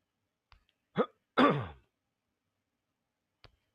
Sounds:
Throat clearing